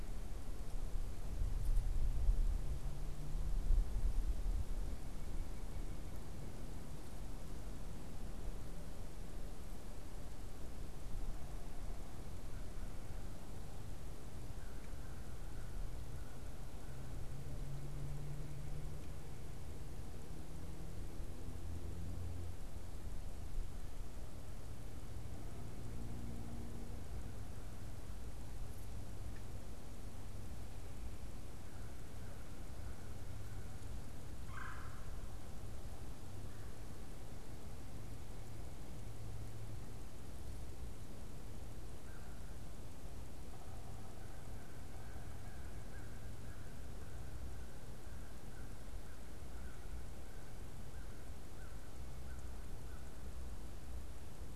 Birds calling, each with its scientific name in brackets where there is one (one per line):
Red-bellied Woodpecker (Melanerpes carolinus)
American Crow (Corvus brachyrhynchos)